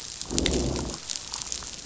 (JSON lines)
{"label": "biophony, growl", "recorder": "SoundTrap 500"}